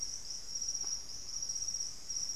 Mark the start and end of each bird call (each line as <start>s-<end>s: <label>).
0.0s-2.4s: Great Antshrike (Taraba major)